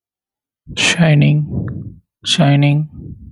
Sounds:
Sigh